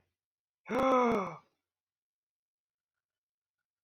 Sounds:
Sigh